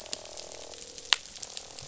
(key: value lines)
label: biophony, croak
recorder: SoundTrap 500